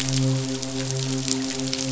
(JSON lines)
{"label": "biophony, midshipman", "recorder": "SoundTrap 500"}